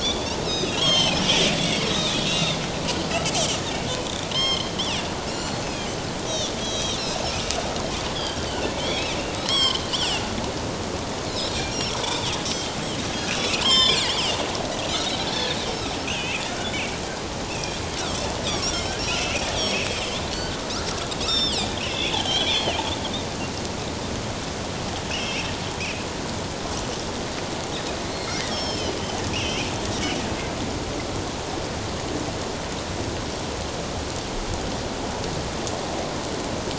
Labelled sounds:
0.0	1.2	Pacific white-sided dolphin, 2.0 to 6.7 kHz
1.6	2.6	Pacific white-sided dolphin, 2.0 to 6.4 kHz
3.3	3.6	Pacific white-sided dolphin, 2.8 to 3.4 kHz
4.3	4.7	Pacific white-sided dolphin, 1.0 to 5.4 kHz
5.3	5.9	Pacific white-sided dolphin, 2.3 to 7.3 kHz
6.3	7.0	Pacific white-sided dolphin, 3.1 to 6.7 kHz
8.5	10.2	Pacific white-sided dolphin, 1.0 to 7.8 kHz
11.3	12.0	Pacific white-sided dolphin, 3.2 to 5.9 kHz
13.3	14.4	Pacific white-sided dolphin, 0.91 to 7.6 kHz
15.3	15.6	Pacific white-sided dolphin, 1.5 to 4.4 kHz
16.1	17.8	Pacific white-sided dolphin, 1.4 to 3.4 kHz
18.5	20.6	Pacific white-sided dolphin, 1.4 to 6.8 kHz
21.2	22.8	Pacific white-sided dolphin, 2.1 to 5.8 kHz
25.1	25.5	Pacific white-sided dolphin, 2.1 to 3.1 kHz
25.8	26.0	Pacific white-sided dolphin, 2.2 to 2.8 kHz
28.1	29.0	Pacific white-sided dolphin, 2.1 to 5.6 kHz
29.3	29.7	Pacific white-sided dolphin, 2.0 to 3.2 kHz

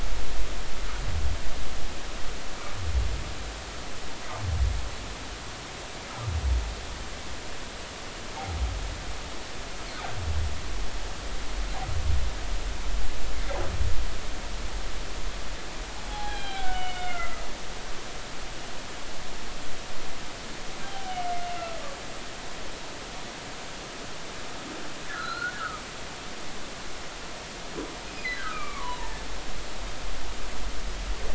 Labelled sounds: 13.3	13.6	humpback whale, 2.0 to 2.2 kHz
16.1	17.4	humpback whale, 0.80 to 4.1 kHz
21.0	21.3	humpback whale, 2.8 to 3.0 kHz
25.1	25.8	humpback whale, 1.2 to 4.4 kHz
28.3	29.3	humpback whale, 0.83 to 2.5 kHz

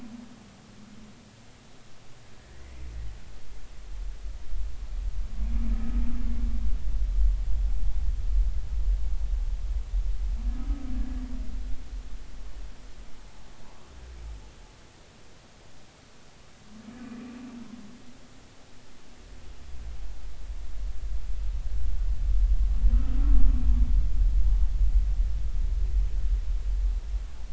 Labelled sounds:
2.6	2.9	humpback whale, 1.9 to 2.2 kHz

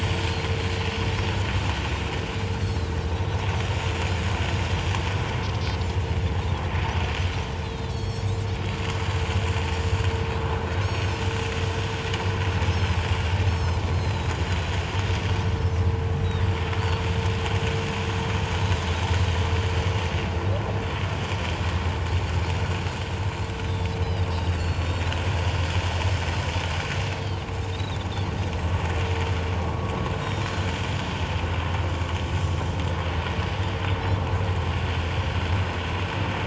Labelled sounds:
2.6	3.4	Pacific white-sided dolphin, 3.8 to 4.5 kHz
4.4	4.7	Pacific white-sided dolphin, 5.2 to 5.4 kHz
7.6	8.5	Pacific white-sided dolphin, 3.2 to 8.0 kHz
10.8	11.2	Pacific white-sided dolphin, 4.1 to 7.8 kHz
12.6	14.3	Pacific white-sided dolphin, 3.8 to 6.6 kHz
23.7	25.1	Pacific white-sided dolphin, 3.4 to 4.8 kHz
27.7	28.4	Pacific white-sided dolphin, 3.4 to 4.6 kHz
30.2	30.7	Pacific white-sided dolphin, 4.0 to 5.8 kHz

